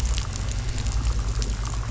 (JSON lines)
{"label": "anthrophony, boat engine", "recorder": "SoundTrap 500"}